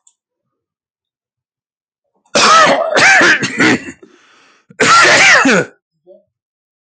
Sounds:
Cough